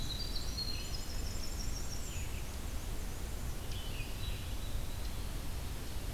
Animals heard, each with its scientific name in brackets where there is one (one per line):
Red-eyed Vireo (Vireo olivaceus)
Hermit Thrush (Catharus guttatus)
Winter Wren (Troglodytes hiemalis)
Black-and-white Warbler (Mniotilta varia)